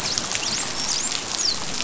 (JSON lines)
{"label": "biophony, dolphin", "recorder": "SoundTrap 500"}